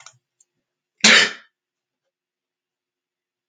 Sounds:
Sneeze